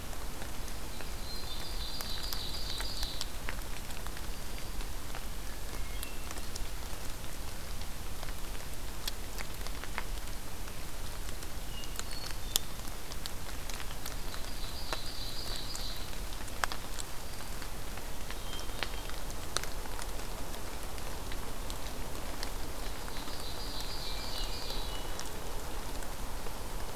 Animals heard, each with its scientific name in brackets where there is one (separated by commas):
Ovenbird (Seiurus aurocapilla), Hermit Thrush (Catharus guttatus), Black-throated Green Warbler (Setophaga virens)